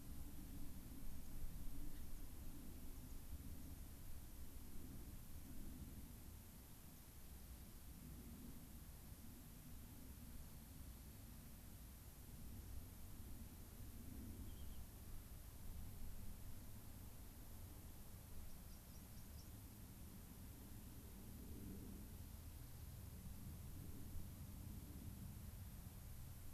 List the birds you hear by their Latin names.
Leucosticte tephrocotis, unidentified bird